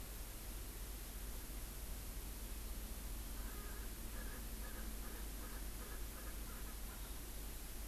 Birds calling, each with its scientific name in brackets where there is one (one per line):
Erckel's Francolin (Pternistis erckelii)